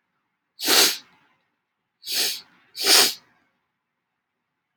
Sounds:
Sniff